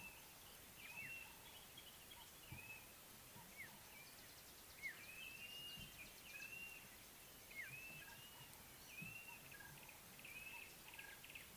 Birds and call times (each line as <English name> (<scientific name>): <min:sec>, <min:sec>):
African Black-headed Oriole (Oriolus larvatus): 0:03.6, 0:07.6
Blue-naped Mousebird (Urocolius macrourus): 0:05.7